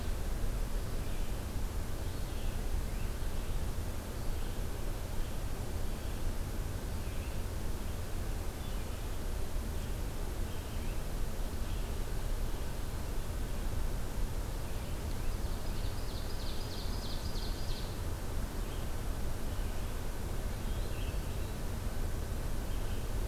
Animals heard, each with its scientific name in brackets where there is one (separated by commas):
Ovenbird (Seiurus aurocapilla), Red-eyed Vireo (Vireo olivaceus)